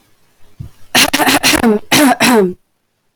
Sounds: Cough